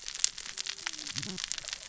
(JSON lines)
{"label": "biophony, cascading saw", "recorder": "SoundTrap 600 or HydroMoth"}